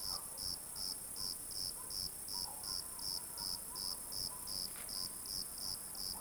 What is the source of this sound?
Eumodicogryllus bordigalensis, an orthopteran